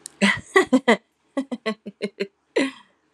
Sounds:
Laughter